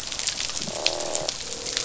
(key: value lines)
label: biophony, croak
recorder: SoundTrap 500